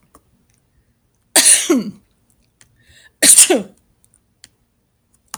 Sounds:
Sneeze